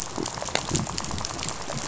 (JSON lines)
{"label": "biophony, rattle", "recorder": "SoundTrap 500"}